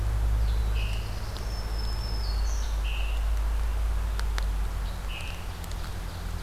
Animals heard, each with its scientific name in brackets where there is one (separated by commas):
Scarlet Tanager (Piranga olivacea), Black-throated Green Warbler (Setophaga virens), Black-throated Blue Warbler (Setophaga caerulescens), Ovenbird (Seiurus aurocapilla)